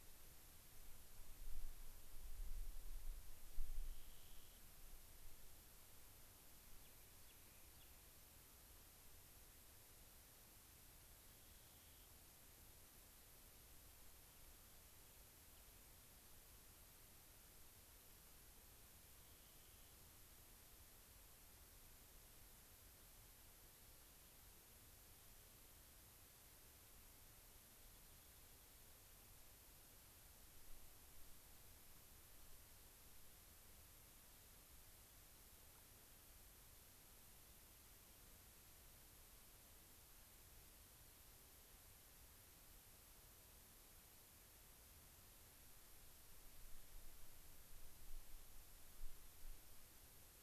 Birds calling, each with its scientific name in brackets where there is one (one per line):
Rock Wren (Salpinctes obsoletus)